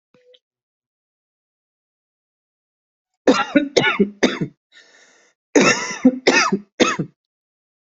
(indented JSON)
{
  "expert_labels": [
    {
      "quality": "good",
      "cough_type": "dry",
      "dyspnea": false,
      "wheezing": false,
      "stridor": false,
      "choking": false,
      "congestion": false,
      "nothing": true,
      "diagnosis": "upper respiratory tract infection",
      "severity": "mild"
    }
  ],
  "age": 35,
  "gender": "female",
  "respiratory_condition": false,
  "fever_muscle_pain": false,
  "status": "healthy"
}